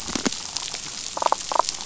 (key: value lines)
label: biophony, damselfish
recorder: SoundTrap 500